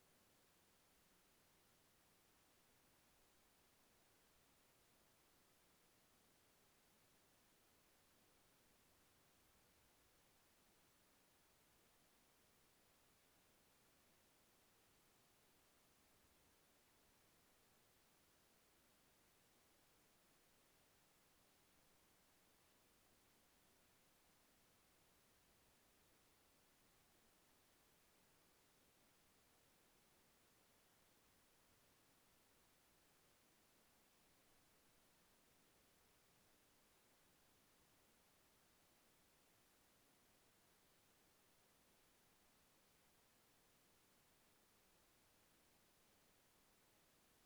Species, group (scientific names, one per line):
Phaneroptera nana
Orthoptera